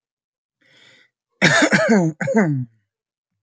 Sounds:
Throat clearing